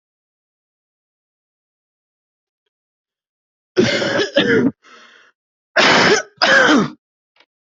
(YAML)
expert_labels:
- quality: good
  cough_type: dry
  dyspnea: false
  wheezing: false
  stridor: false
  choking: false
  congestion: false
  nothing: true
  diagnosis: lower respiratory tract infection
  severity: mild
age: 31
gender: male
respiratory_condition: false
fever_muscle_pain: false
status: symptomatic